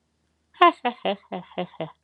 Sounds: Laughter